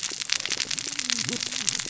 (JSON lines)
{"label": "biophony, cascading saw", "recorder": "SoundTrap 600 or HydroMoth"}